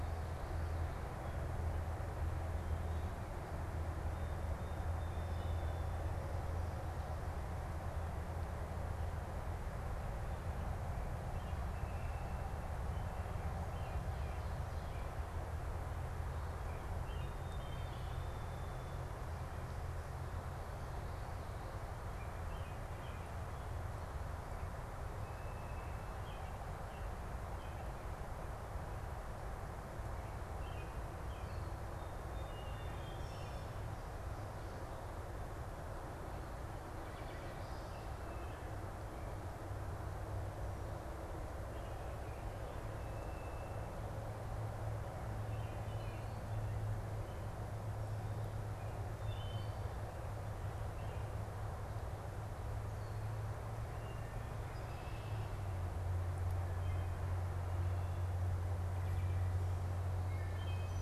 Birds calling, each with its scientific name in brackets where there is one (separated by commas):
unidentified bird, Song Sparrow (Melospiza melodia), Wood Thrush (Hylocichla mustelina), American Robin (Turdus migratorius)